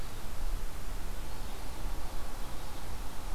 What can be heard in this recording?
Red-eyed Vireo